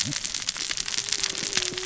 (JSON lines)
{"label": "biophony, cascading saw", "recorder": "SoundTrap 600 or HydroMoth"}